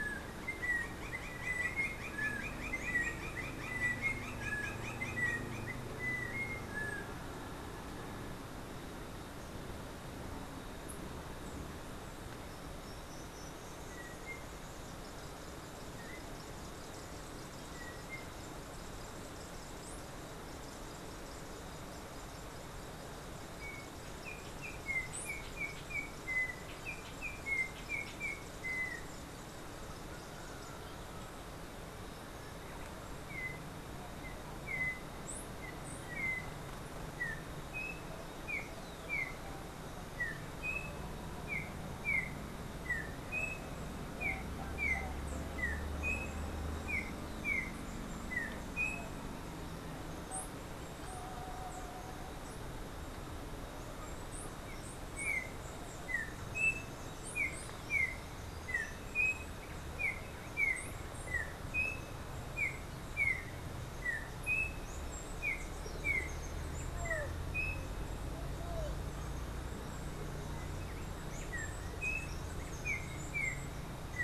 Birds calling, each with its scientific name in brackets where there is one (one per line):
Steely-vented Hummingbird (Saucerottia saucerottei)
Roadside Hawk (Rupornis magnirostris)
Black-capped Tanager (Stilpnia heinei)
Yellow-backed Oriole (Icterus chrysater)